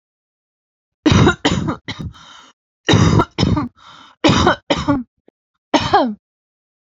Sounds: Cough